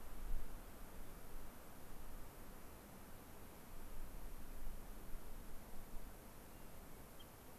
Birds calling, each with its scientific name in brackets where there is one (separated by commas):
Hermit Thrush (Catharus guttatus)